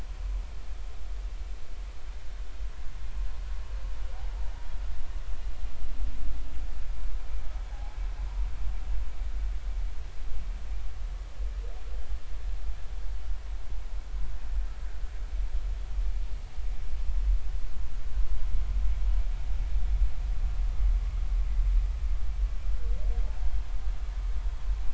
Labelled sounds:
7.7	8.0	humpback whale, 0.80 to 0.90 kHz

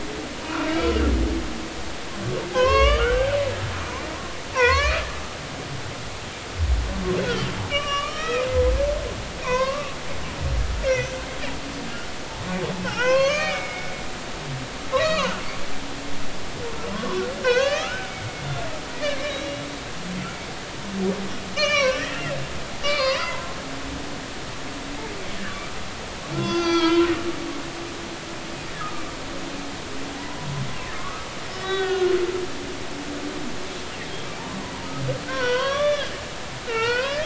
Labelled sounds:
0.7	1.0	humpback whale, 2.0 to 3.0 kHz
2.5	3.3	humpback whale, 0.93 to 5.7 kHz
4.5	5.0	humpback whale, 0.86 to 3.0 kHz
7.2	8.4	humpback whale, 1.1 to 5.8 kHz
9.4	9.9	humpback whale, 0.93 to 5.7 kHz
10.8	11.1	humpback whale, 1.9 to 2.8 kHz
12.8	13.9	humpback whale, 0.93 to 6.8 kHz
14.9	15.4	humpback whale, 0.90 to 4.1 kHz
16.9	18.6	humpback whale, 0.80 to 5.3 kHz
21.6	22.3	humpback whale, 0.99 to 6.0 kHz
22.8	23.5	humpback whale, 0.86 to 4.4 kHz
26.3	27.0	humpback whale, 0.90 to 6.2 kHz
28.8	29.0	humpback whale, 1.1 to 1.4 kHz
31.0	32.1	humpback whale, 1.0 to 3.9 kHz
35.3	37.2	humpback whale, 0.83 to 5.9 kHz

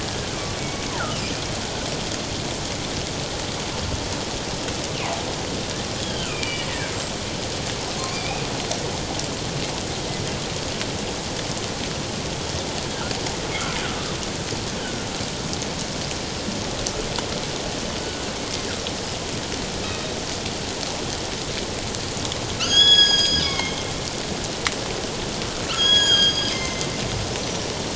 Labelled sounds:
0.6	1.4	killer whale, northern resident, G clan, 2.2 to 2.5 kHz
6.0	6.7	killer whale, northern resident, G clan, 2.2 to 3.4 kHz
8.1	8.5	killer whale, northern resident, G clan, 2.3 to 2.6 kHz
12.9	13.1	killer whale, northern resident, G clan, 1.3 to 1.7 kHz
19.8	20.1	killer whale, northern resident, G clan, 3.7 to 3.9 kHz
22.6	23.8	killer whale, northern resident, G clan, 1.6 to 6.8 kHz
25.7	26.9	killer whale, northern resident, G clan, 1.3 to 7.1 kHz
27.4	27.9	killer whale, northern resident, G clan, 5.5 to 6.2 kHz

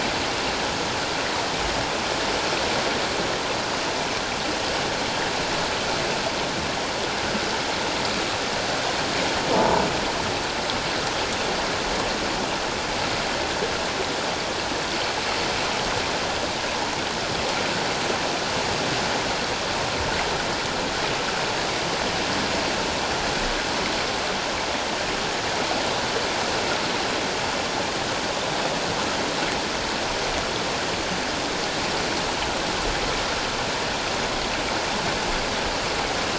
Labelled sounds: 9.5	9.8	croaking sound likely from a nearby submerged object, 0.81 to 1.0 kHz

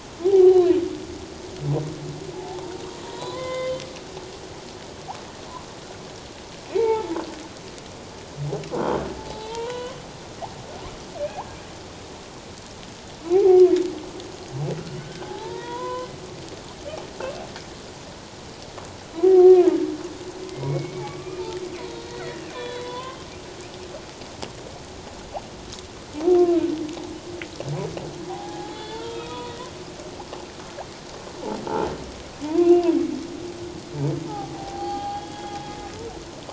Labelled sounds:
0.3	0.6	humpback whale, 0.78 to 0.84 kHz
2.3	3.8	humpback whale, 0.78 to 4.0 kHz
6.7	7.1	humpback whale, 0.78 to 2.7 kHz
9.3	10.0	humpback whale, 0.84 to 4.1 kHz
11.1	11.4	humpback whale, 2.3 to 2.6 kHz
13.3	13.6	humpback whale, 0.78 to 0.91 kHz
14.9	16.1	humpback whale, 0.78 to 3.5 kHz
19.2	19.8	humpback whale, 0.78 to 1.2 kHz
20.5	21.5	humpback whale, 1.1 to 2.5 kHz
21.8	23.3	humpback whale, 0.94 to 4.4 kHz
28.3	29.7	humpback whale, 0.78 to 3.9 kHz
31.6	31.9	croaking sound likely from a nearby submerged object, 0.81 to 0.97 kHz
32.4	32.9	humpback whale, 0.84 to 2.9 kHz
34.3	35.6	humpback whale, 0.78 to 4.6 kHz

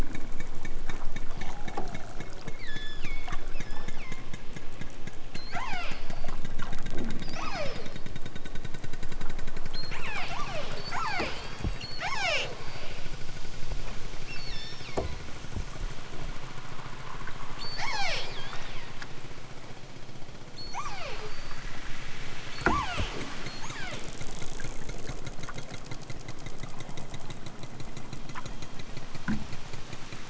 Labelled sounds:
2.5	4.4	killer whale, southern Alaska resident, 0.50 to 8.0 kHz
5.3	6.3	killer whale, southern Alaska resident, 0.23 to 8.0 kHz
7.2	7.9	killer whale, southern Alaska resident, 0.28 to 7.1 kHz
9.7	11.5	killer whale, southern Alaska resident, 0.23 to 8.0 kHz
11.8	12.6	killer whale, southern Alaska resident, 0.18 to 8.0 kHz
14.2	15.1	killer whale, southern Alaska resident, 0.87 to 6.0 kHz
17.5	18.9	killer whale, southern Alaska resident, 0.23 to 8.0 kHz
20.6	21.4	killer whale, southern Alaska resident, 0.14 to 8.0 kHz
22.5	24.1	killer whale, southern Alaska resident, 0.09 to 8.0 kHz

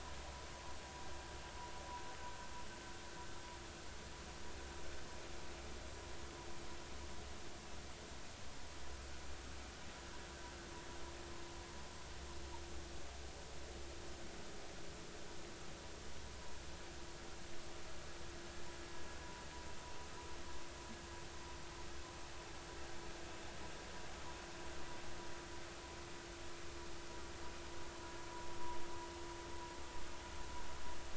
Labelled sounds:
19.2	19.4	vessel noise, 0.93 to 1.0 kHz

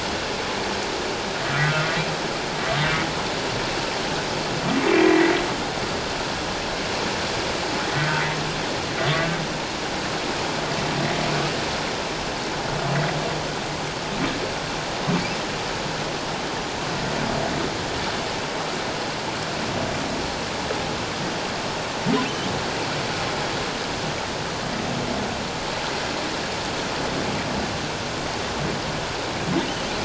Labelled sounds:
1.7	2.0	humpback whale, 1.3 to 1.5 kHz
4.9	5.3	humpback whale, 1.8 to 2.1 kHz
8.0	8.2	humpback whale, 1.3 to 1.6 kHz

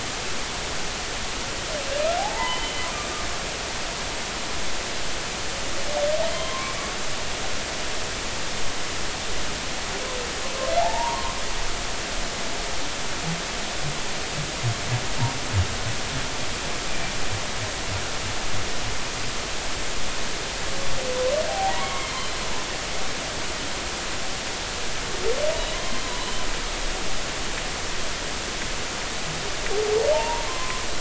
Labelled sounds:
2.2	2.7	humpback whale, 0.80 to 3.1 kHz
6.3	6.7	humpback whale, 0.96 to 1.2 kHz
10.8	11.4	humpback whale, 0.80 to 1.1 kHz
21.5	22.3	humpback whale, 0.80 to 3.3 kHz
26.2	27.1	humpback whale, 2.9 to 3.2 kHz
30.1	30.8	humpback whale, 0.83 to 1.1 kHz

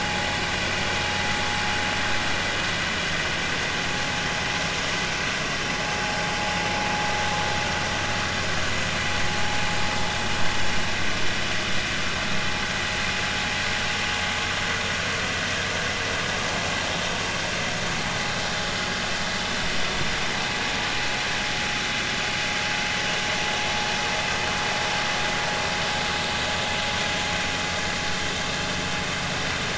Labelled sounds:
18.0	18.3	vessel noise, 0.80 to 0.86 kHz

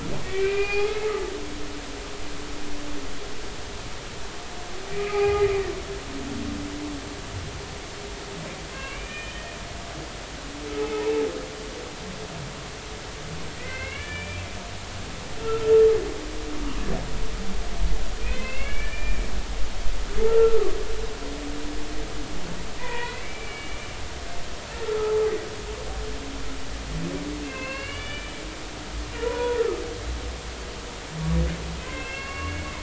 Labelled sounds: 0.2	1.1	humpback whale, 0.80 to 5.0 kHz
4.9	5.5	humpback whale, 0.80 to 2.6 kHz
8.7	9.5	humpback whale, 1.0 to 3.1 kHz
10.8	11.2	humpback whale, 0.80 to 0.99 kHz
13.6	14.4	humpback whale, 1.5 to 2.9 kHz
15.4	15.7	humpback whale, 1.3 to 1.4 kHz
18.2	19.3	humpback whale, 1.6 to 2.9 kHz
20.3	20.7	humpback whale, 1.1 to 1.4 kHz
22.8	23.9	humpback whale, 0.90 to 2.9 kHz
24.8	25.2	humpback whale, 1.2 to 1.4 kHz
27.4	28.4	humpback whale, 0.99 to 4.5 kHz
29.2	29.8	humpback whale, 0.90 to 1.5 kHz
31.8	32.7	humpback whale, 0.99 to 4.5 kHz

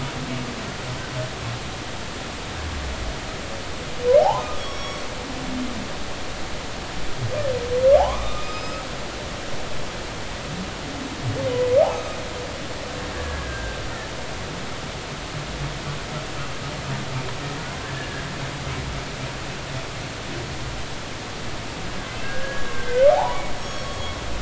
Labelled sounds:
4.2	5.0	humpback whale, 0.80 to 5.6 kHz
8.0	8.8	humpback whale, 0.80 to 2.7 kHz
9.4	9.8	humpback whale, 3.6 to 5.2 kHz
11.9	12.2	humpback whale, 1.2 to 1.3 kHz
13.3	13.8	humpback whale, 1.5 to 1.7 kHz
17.8	18.2	humpback whale, 1.5 to 1.8 kHz
22.2	24.1	humpback whale, 0.80 to 5.6 kHz

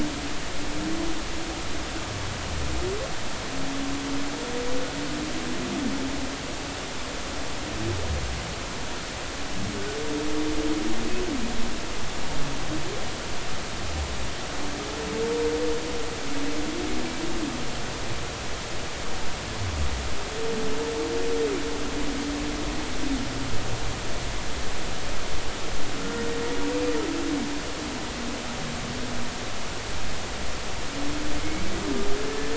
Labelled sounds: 26.0	26.2	humpback whale, 1.3 to 1.4 kHz

